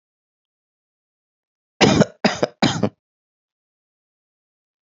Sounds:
Cough